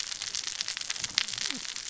{"label": "biophony, cascading saw", "recorder": "SoundTrap 600 or HydroMoth"}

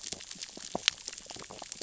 {"label": "biophony, sea urchins (Echinidae)", "recorder": "SoundTrap 600 or HydroMoth"}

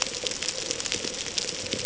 {"label": "ambient", "recorder": "HydroMoth"}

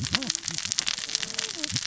{"label": "biophony, cascading saw", "recorder": "SoundTrap 600 or HydroMoth"}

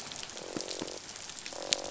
{"label": "biophony, croak", "recorder": "SoundTrap 500"}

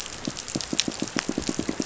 {"label": "biophony, pulse", "recorder": "SoundTrap 500"}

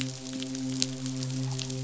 {"label": "biophony, midshipman", "recorder": "SoundTrap 500"}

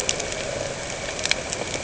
{"label": "anthrophony, boat engine", "recorder": "HydroMoth"}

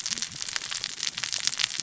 {"label": "biophony, cascading saw", "recorder": "SoundTrap 600 or HydroMoth"}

